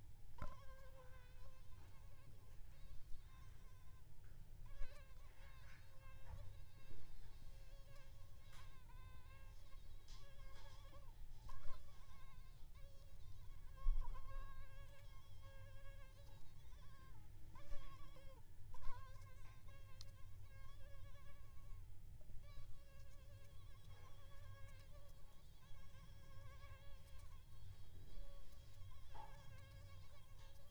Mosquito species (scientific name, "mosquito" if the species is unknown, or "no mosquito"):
Aedes aegypti